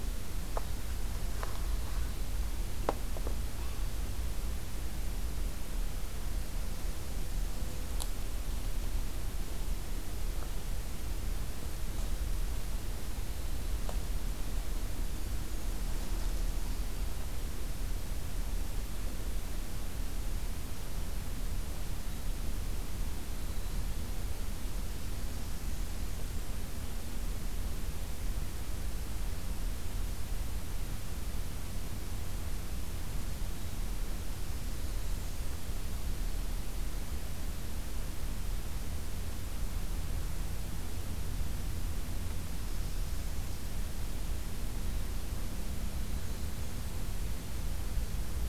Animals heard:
forest ambience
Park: Acadia National Park